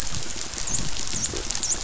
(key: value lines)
label: biophony, dolphin
recorder: SoundTrap 500